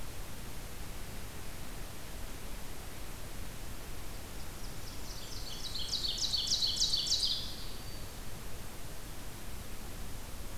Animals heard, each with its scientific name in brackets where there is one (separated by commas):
Black-throated Green Warbler (Setophaga virens), Blackburnian Warbler (Setophaga fusca), Ovenbird (Seiurus aurocapilla)